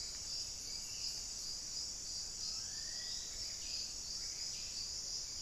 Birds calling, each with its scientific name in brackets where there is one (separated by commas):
Forest Elaenia (Myiopagis gaimardii), Black-faced Cotinga (Conioptilon mcilhennyi)